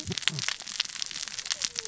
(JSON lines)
{"label": "biophony, cascading saw", "recorder": "SoundTrap 600 or HydroMoth"}